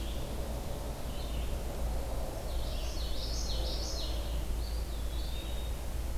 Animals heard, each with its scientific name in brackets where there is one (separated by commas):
Common Yellowthroat (Geothlypis trichas), Red-eyed Vireo (Vireo olivaceus), Eastern Wood-Pewee (Contopus virens)